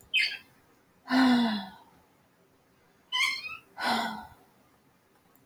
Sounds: Sigh